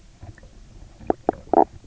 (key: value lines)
label: biophony, knock croak
recorder: SoundTrap 300